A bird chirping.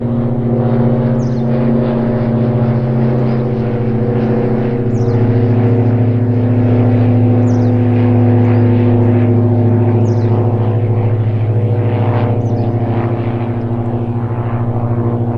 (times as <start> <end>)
1.2 1.5, 4.9 5.3, 7.4 7.9, 10.1 10.5, 12.4 12.8